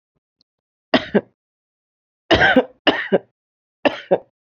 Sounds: Cough